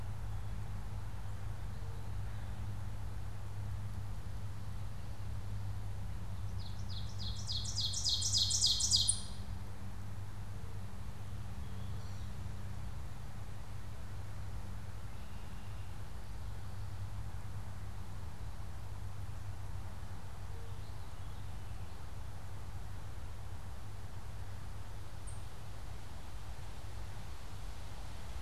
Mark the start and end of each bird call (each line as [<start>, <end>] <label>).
[6.38, 9.88] Ovenbird (Seiurus aurocapilla)
[11.58, 12.48] unidentified bird
[25.08, 25.58] Ovenbird (Seiurus aurocapilla)